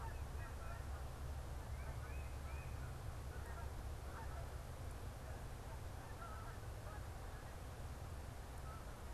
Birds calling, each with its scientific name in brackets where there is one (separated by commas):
Canada Goose (Branta canadensis), Tufted Titmouse (Baeolophus bicolor)